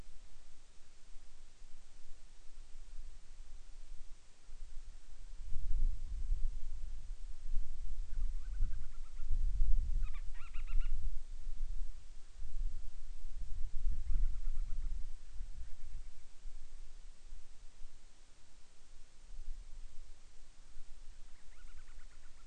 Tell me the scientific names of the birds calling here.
Hydrobates castro